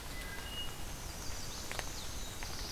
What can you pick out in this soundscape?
Wood Thrush, Black-and-white Warbler, Chestnut-sided Warbler, Black-throated Blue Warbler